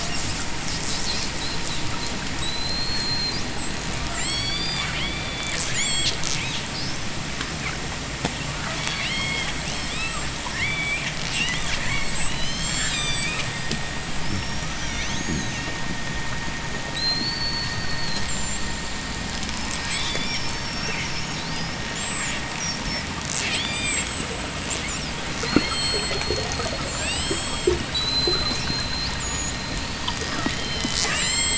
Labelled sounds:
0.2	3.5	killer whale, J pod, 3.0 to 8.0 kHz
3.9	6.8	killer whale, J pod, 1.2 to 8.0 kHz
8.8	13.9	killer whale, J pod, 1.7 to 8.0 kHz
14.1	15.9	killer whale, J pod, 1.9 to 7.2 kHz
16.7	19.0	killer whale, J pod, 3.2 to 8.0 kHz
19.5	21.0	killer whale, J pod, 1.3 to 8.0 kHz
21.9	22.5	killer whale, J pod, 5.1 to 8.0 kHz
23.4	24.5	killer whale, J pod, 1.3 to 8.0 kHz
25.3	31.5	killer whale, J pod, 0.78 to 8.0 kHz

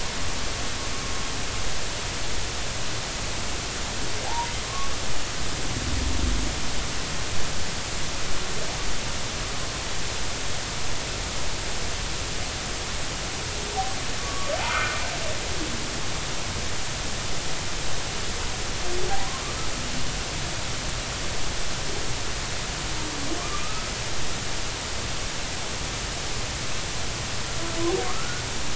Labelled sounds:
4.3	4.9	humpback whale, 0.80 to 1.2 kHz
14.2	15.0	humpback whale, 1.1 to 2.5 kHz
19.1	19.4	humpback whale, 0.80 to 1.1 kHz
23.6	23.9	humpback whale, 1.2 to 1.4 kHz
28.0	28.4	humpback whale, 1.0 to 1.5 kHz

